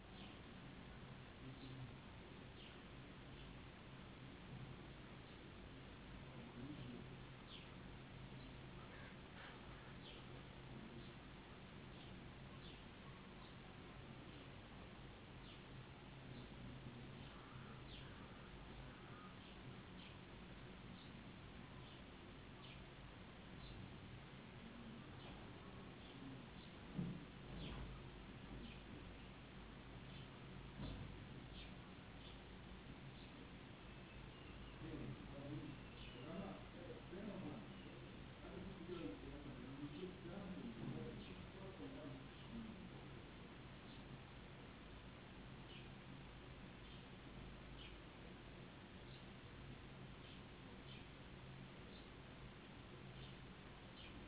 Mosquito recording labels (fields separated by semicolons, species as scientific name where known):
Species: no mosquito; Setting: insect culture